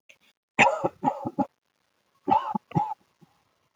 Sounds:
Cough